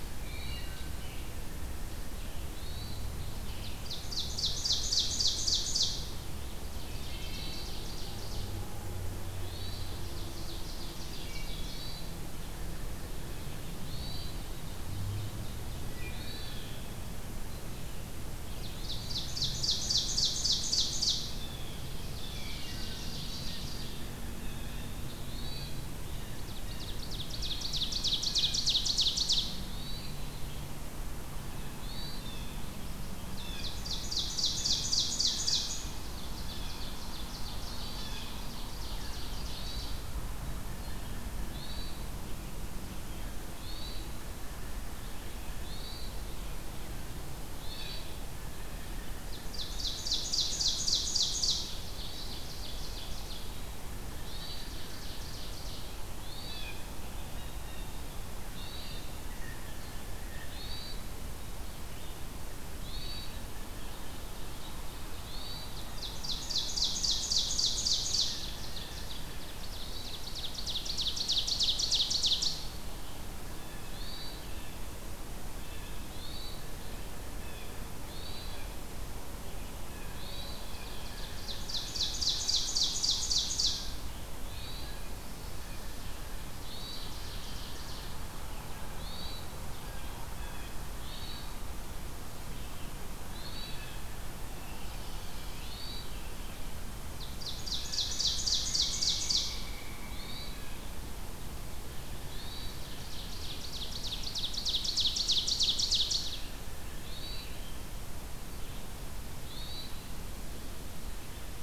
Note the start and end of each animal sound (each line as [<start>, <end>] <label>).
[0.00, 47.20] Red-eyed Vireo (Vireo olivaceus)
[0.03, 1.01] Wood Thrush (Hylocichla mustelina)
[0.15, 0.89] Hermit Thrush (Catharus guttatus)
[2.50, 3.26] Hermit Thrush (Catharus guttatus)
[3.39, 5.98] Ovenbird (Seiurus aurocapilla)
[6.32, 8.50] Ovenbird (Seiurus aurocapilla)
[6.64, 7.79] Wood Thrush (Hylocichla mustelina)
[6.87, 7.75] Hermit Thrush (Catharus guttatus)
[9.22, 10.13] Hermit Thrush (Catharus guttatus)
[10.04, 11.80] Ovenbird (Seiurus aurocapilla)
[11.42, 12.26] Hermit Thrush (Catharus guttatus)
[13.54, 14.47] Hermit Thrush (Catharus guttatus)
[13.94, 15.87] Ovenbird (Seiurus aurocapilla)
[15.54, 16.47] Wood Thrush (Hylocichla mustelina)
[16.02, 16.85] Hermit Thrush (Catharus guttatus)
[18.48, 21.31] Ovenbird (Seiurus aurocapilla)
[21.36, 21.97] Blue Jay (Cyanocitta cristata)
[21.88, 23.97] Ovenbird (Seiurus aurocapilla)
[22.16, 23.13] Wood Thrush (Hylocichla mustelina)
[24.30, 24.83] Blue Jay (Cyanocitta cristata)
[25.16, 25.82] Hermit Thrush (Catharus guttatus)
[26.31, 29.45] Ovenbird (Seiurus aurocapilla)
[29.60, 30.27] Hermit Thrush (Catharus guttatus)
[31.70, 32.49] Hermit Thrush (Catharus guttatus)
[33.25, 39.97] Ovenbird (Seiurus aurocapilla)
[37.57, 38.32] Hermit Thrush (Catharus guttatus)
[39.35, 40.05] Hermit Thrush (Catharus guttatus)
[41.23, 42.05] Hermit Thrush (Catharus guttatus)
[42.78, 43.59] Wood Thrush (Hylocichla mustelina)
[43.45, 44.39] Hermit Thrush (Catharus guttatus)
[45.54, 46.22] Hermit Thrush (Catharus guttatus)
[47.46, 48.21] Hermit Thrush (Catharus guttatus)
[48.36, 49.28] Blue Jay (Cyanocitta cristata)
[49.21, 53.55] Ovenbird (Seiurus aurocapilla)
[51.80, 52.50] Hermit Thrush (Catharus guttatus)
[54.07, 54.70] Hermit Thrush (Catharus guttatus)
[54.19, 55.82] Ovenbird (Seiurus aurocapilla)
[56.10, 56.80] Hermit Thrush (Catharus guttatus)
[56.42, 58.44] Blue Jay (Cyanocitta cristata)
[58.48, 59.23] Hermit Thrush (Catharus guttatus)
[59.17, 60.66] Blue Jay (Cyanocitta cristata)
[60.46, 61.08] Hermit Thrush (Catharus guttatus)
[62.66, 63.43] Hermit Thrush (Catharus guttatus)
[63.73, 65.51] Ovenbird (Seiurus aurocapilla)
[65.19, 65.78] Hermit Thrush (Catharus guttatus)
[65.83, 72.62] Ovenbird (Seiurus aurocapilla)
[69.62, 70.29] Hermit Thrush (Catharus guttatus)
[73.40, 74.79] Blue Jay (Cyanocitta cristata)
[73.66, 74.61] Hermit Thrush (Catharus guttatus)
[75.49, 76.02] Blue Jay (Cyanocitta cristata)
[75.95, 76.70] Hermit Thrush (Catharus guttatus)
[77.29, 77.94] Blue Jay (Cyanocitta cristata)
[78.03, 78.77] Hermit Thrush (Catharus guttatus)
[79.85, 81.40] Blue Jay (Cyanocitta cristata)
[80.11, 80.69] Hermit Thrush (Catharus guttatus)
[80.68, 83.82] Ovenbird (Seiurus aurocapilla)
[84.31, 85.05] Hermit Thrush (Catharus guttatus)
[86.53, 88.13] Ovenbird (Seiurus aurocapilla)
[88.83, 89.53] Hermit Thrush (Catharus guttatus)
[90.25, 90.74] Blue Jay (Cyanocitta cristata)
[90.91, 91.58] Hermit Thrush (Catharus guttatus)
[93.20, 93.79] Hermit Thrush (Catharus guttatus)
[94.39, 95.75] Blue Jay (Cyanocitta cristata)
[95.47, 96.29] Hermit Thrush (Catharus guttatus)
[97.06, 99.66] Ovenbird (Seiurus aurocapilla)
[98.53, 100.68] Pileated Woodpecker (Dryocopus pileatus)
[100.00, 100.72] Hermit Thrush (Catharus guttatus)
[102.13, 102.90] Hermit Thrush (Catharus guttatus)
[102.63, 106.48] Ovenbird (Seiurus aurocapilla)
[106.89, 107.60] Hermit Thrush (Catharus guttatus)
[109.35, 110.11] Hermit Thrush (Catharus guttatus)